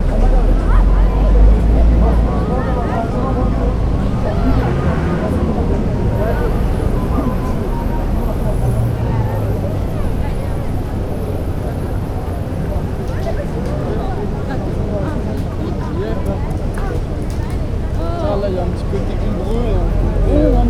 Are people talking?
yes